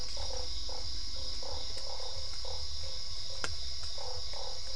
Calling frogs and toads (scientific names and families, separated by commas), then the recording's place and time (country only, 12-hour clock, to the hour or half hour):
Boana lundii (Hylidae), Dendropsophus cruzi (Hylidae)
Brazil, 8pm